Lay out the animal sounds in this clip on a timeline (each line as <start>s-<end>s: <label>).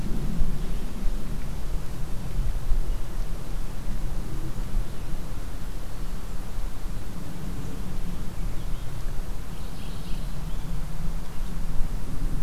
9.4s-10.3s: Mourning Warbler (Geothlypis philadelphia)